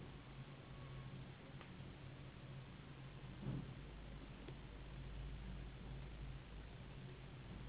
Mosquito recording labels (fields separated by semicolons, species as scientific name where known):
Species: Anopheles gambiae s.s.; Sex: female; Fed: unfed; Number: one; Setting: insect culture